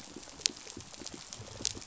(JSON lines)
{"label": "biophony, pulse", "recorder": "SoundTrap 500"}